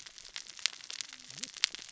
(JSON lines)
{"label": "biophony, cascading saw", "recorder": "SoundTrap 600 or HydroMoth"}